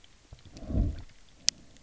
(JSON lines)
{"label": "biophony", "recorder": "SoundTrap 300"}